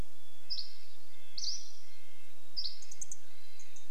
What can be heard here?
Dusky Flycatcher song, Mountain Chickadee song, Red-breasted Nuthatch song, Dark-eyed Junco call, Hermit Thrush call